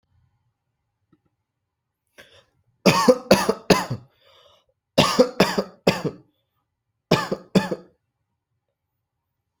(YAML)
expert_labels:
- quality: good
  cough_type: dry
  dyspnea: false
  wheezing: false
  stridor: false
  choking: false
  congestion: false
  nothing: true
  diagnosis: upper respiratory tract infection
  severity: mild
gender: female
respiratory_condition: false
fever_muscle_pain: false
status: symptomatic